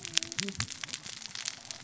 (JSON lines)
{"label": "biophony, cascading saw", "recorder": "SoundTrap 600 or HydroMoth"}